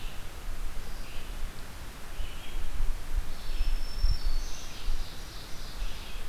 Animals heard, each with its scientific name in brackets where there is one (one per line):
Ovenbird (Seiurus aurocapilla)
Red-eyed Vireo (Vireo olivaceus)
Black-throated Green Warbler (Setophaga virens)